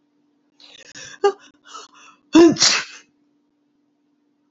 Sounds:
Sneeze